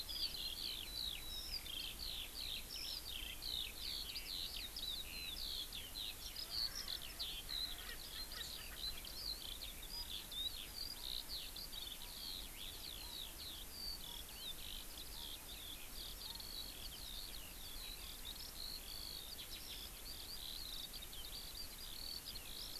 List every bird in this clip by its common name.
Eurasian Skylark, Erckel's Francolin